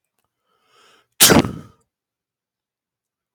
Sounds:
Sneeze